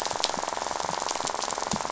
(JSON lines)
{"label": "biophony, rattle", "recorder": "SoundTrap 500"}